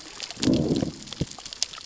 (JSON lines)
{"label": "biophony, growl", "recorder": "SoundTrap 600 or HydroMoth"}